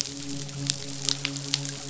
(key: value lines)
label: biophony, midshipman
recorder: SoundTrap 500